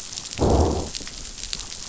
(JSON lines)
{"label": "biophony, growl", "recorder": "SoundTrap 500"}